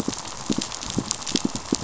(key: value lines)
label: biophony, pulse
recorder: SoundTrap 500